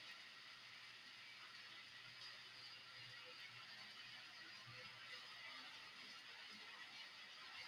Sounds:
Sigh